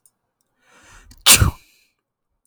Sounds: Sneeze